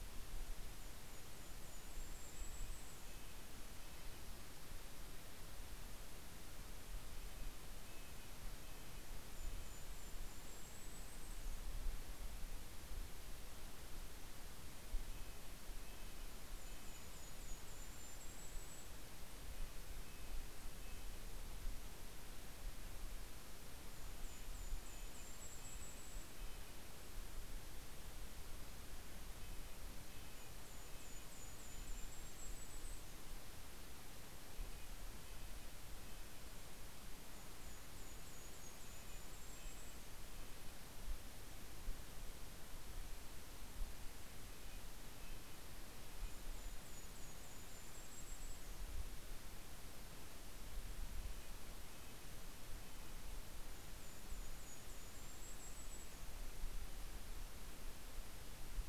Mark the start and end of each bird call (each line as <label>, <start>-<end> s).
Golden-crowned Kinglet (Regulus satrapa), 0.0-5.0 s
Red-breasted Nuthatch (Sitta canadensis), 1.9-4.9 s
Red-breasted Nuthatch (Sitta canadensis), 6.8-10.3 s
Golden-crowned Kinglet (Regulus satrapa), 7.8-12.5 s
Red-breasted Nuthatch (Sitta canadensis), 14.7-17.8 s
Golden-crowned Kinglet (Regulus satrapa), 16.2-19.6 s
Red-breasted Nuthatch (Sitta canadensis), 19.4-22.1 s
Golden-crowned Kinglet (Regulus satrapa), 23.5-26.9 s
Red-breasted Nuthatch (Sitta canadensis), 23.9-27.5 s
Red-breasted Nuthatch (Sitta canadensis), 28.9-32.7 s
Golden-crowned Kinglet (Regulus satrapa), 29.9-33.8 s
Red-breasted Nuthatch (Sitta canadensis), 34.0-37.1 s
Golden-crowned Kinglet (Regulus satrapa), 36.8-41.6 s
Red-breasted Nuthatch (Sitta canadensis), 38.2-41.2 s
Red-breasted Nuthatch (Sitta canadensis), 44.0-47.3 s
Golden-crowned Kinglet (Regulus satrapa), 45.6-49.8 s
Red-breasted Nuthatch (Sitta canadensis), 50.4-54.3 s
Golden-crowned Kinglet (Regulus satrapa), 53.1-57.0 s